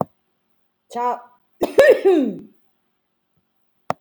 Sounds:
Cough